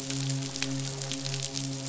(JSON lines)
{"label": "biophony, midshipman", "recorder": "SoundTrap 500"}